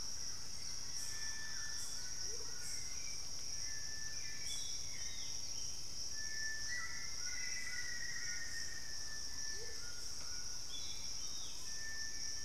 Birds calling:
White-throated Toucan (Ramphastos tucanus), Amazonian Motmot (Momotus momota), Black-faced Antthrush (Formicarius analis), Plain-winged Antshrike (Thamnophilus schistaceus), Hauxwell's Thrush (Turdus hauxwelli)

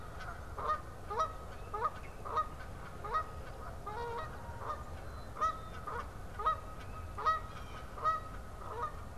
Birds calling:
Canada Goose (Branta canadensis), Black-capped Chickadee (Poecile atricapillus), Blue Jay (Cyanocitta cristata)

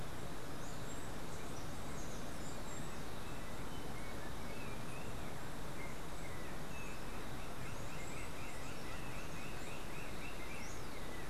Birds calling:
Yellow-backed Oriole (Icterus chrysater), Roadside Hawk (Rupornis magnirostris)

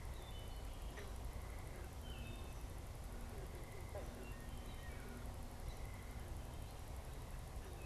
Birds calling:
Wood Thrush (Hylocichla mustelina)

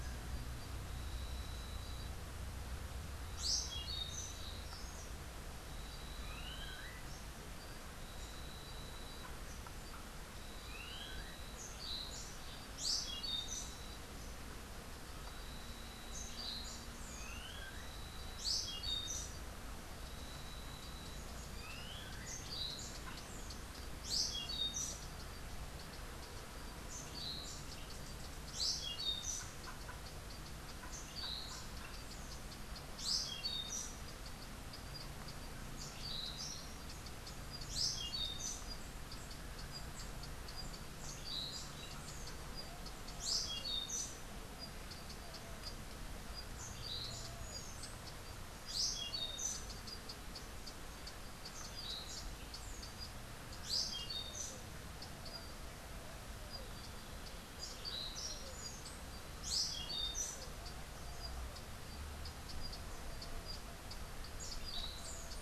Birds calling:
Clay-colored Thrush (Turdus grayi), Orange-billed Nightingale-Thrush (Catharus aurantiirostris)

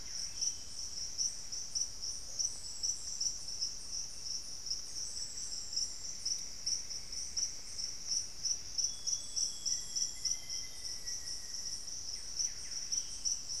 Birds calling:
Buff-breasted Wren (Cantorchilus leucotis), Black-faced Antthrush (Formicarius analis), Amazonian Grosbeak (Cyanoloxia rothschildii)

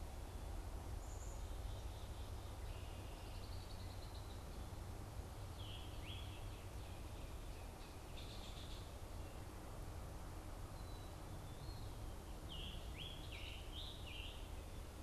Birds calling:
Red-winged Blackbird (Agelaius phoeniceus), Scarlet Tanager (Piranga olivacea)

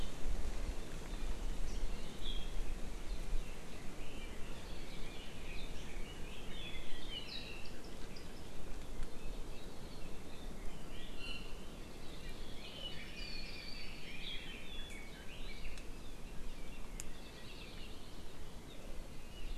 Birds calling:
Red-billed Leiothrix (Leiothrix lutea), Hawaii Creeper (Loxops mana), Iiwi (Drepanis coccinea)

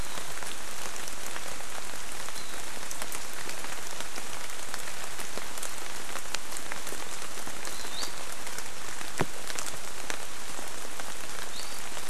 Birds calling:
Iiwi (Drepanis coccinea)

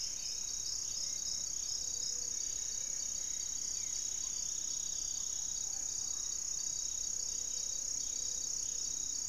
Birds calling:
Amazonian Trogon (Trogon ramonianus), unidentified bird, Gray-fronted Dove (Leptotila rufaxilla), Ruddy Pigeon (Patagioenas subvinacea), Hauxwell's Thrush (Turdus hauxwelli), Striped Woodcreeper (Xiphorhynchus obsoletus)

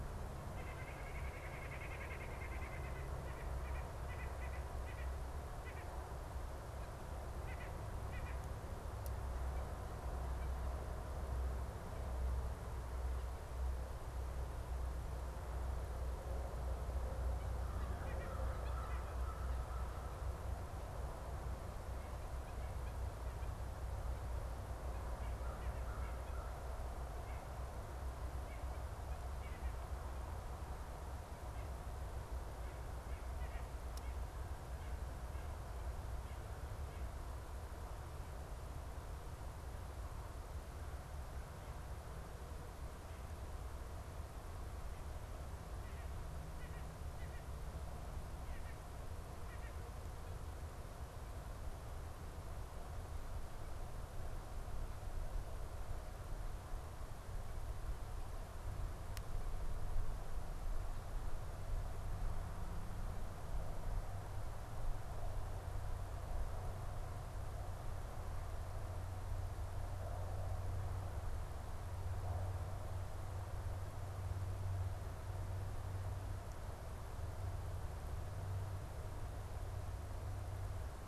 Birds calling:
White-breasted Nuthatch (Sitta carolinensis), American Robin (Turdus migratorius), American Crow (Corvus brachyrhynchos)

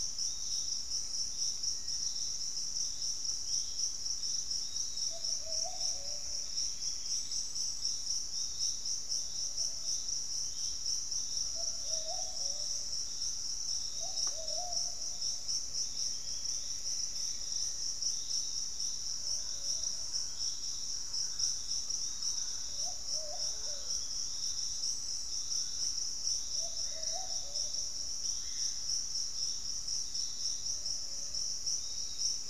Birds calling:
Black-faced Antthrush (Formicarius analis), Screaming Piha (Lipaugus vociferans), Thrush-like Wren (Campylorhynchus turdinus), Pygmy Antwren (Myrmotherula brachyura), unidentified bird, Piratic Flycatcher (Legatus leucophaius), Lemon-throated Barbet (Eubucco richardsoni)

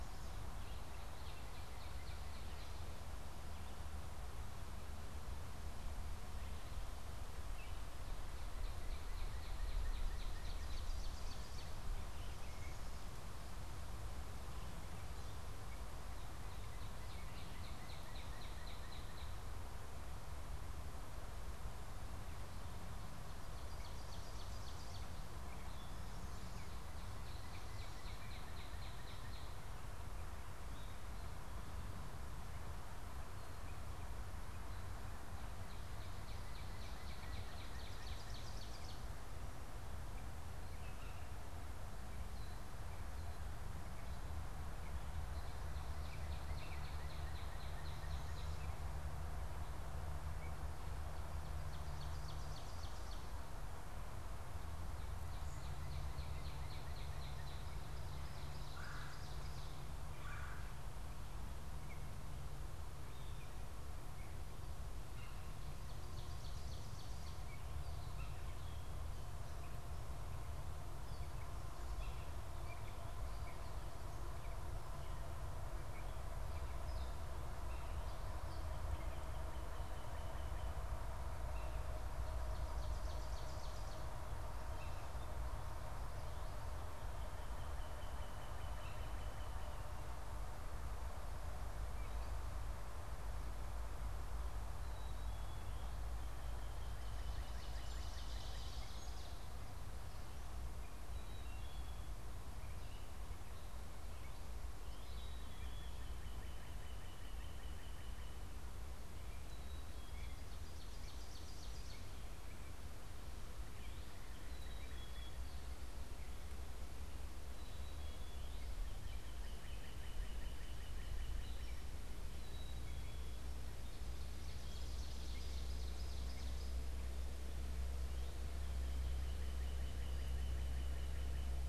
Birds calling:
Northern Cardinal (Cardinalis cardinalis), Gray Catbird (Dumetella carolinensis), Ovenbird (Seiurus aurocapilla), Red-bellied Woodpecker (Melanerpes carolinus), Black-capped Chickadee (Poecile atricapillus)

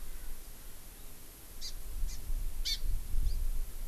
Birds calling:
Hawaii Amakihi (Chlorodrepanis virens)

